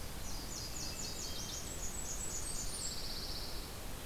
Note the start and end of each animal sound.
[0.00, 1.88] Nashville Warbler (Leiothlypis ruficapilla)
[1.51, 3.21] Blackburnian Warbler (Setophaga fusca)
[2.22, 3.76] Pine Warbler (Setophaga pinus)

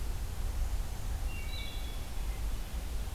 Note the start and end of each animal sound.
[1.11, 2.49] Wood Thrush (Hylocichla mustelina)

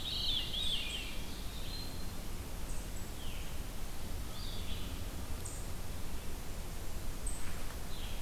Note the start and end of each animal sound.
[0.00, 1.21] Veery (Catharus fuscescens)
[0.00, 4.94] Red-eyed Vireo (Vireo olivaceus)
[0.61, 2.18] Eastern Wood-Pewee (Contopus virens)
[3.14, 3.65] Veery (Catharus fuscescens)
[7.83, 8.21] Veery (Catharus fuscescens)

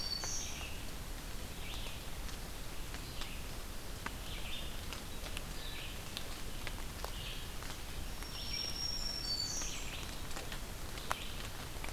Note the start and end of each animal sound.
[0.00, 0.77] Black-throated Green Warbler (Setophaga virens)
[0.00, 11.92] Red-eyed Vireo (Vireo olivaceus)
[7.96, 9.97] Black-throated Green Warbler (Setophaga virens)
[8.57, 9.90] Blackburnian Warbler (Setophaga fusca)

